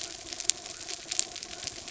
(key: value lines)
label: anthrophony, mechanical
recorder: SoundTrap 300